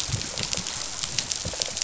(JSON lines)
{"label": "biophony, rattle response", "recorder": "SoundTrap 500"}